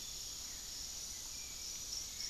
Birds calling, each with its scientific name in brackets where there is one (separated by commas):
Piratic Flycatcher (Legatus leucophaius), Hauxwell's Thrush (Turdus hauxwelli)